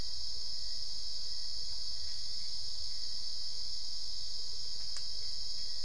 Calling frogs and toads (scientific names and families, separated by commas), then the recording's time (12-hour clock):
none
3:45am